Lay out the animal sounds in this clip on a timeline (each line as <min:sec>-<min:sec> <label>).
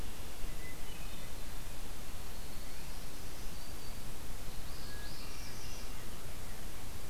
0:00.6-0:01.6 Hermit Thrush (Catharus guttatus)
0:02.0-0:03.3 Dark-eyed Junco (Junco hyemalis)
0:02.9-0:04.1 Black-throated Green Warbler (Setophaga virens)
0:04.5-0:05.9 Northern Parula (Setophaga americana)
0:04.8-0:06.3 Hermit Thrush (Catharus guttatus)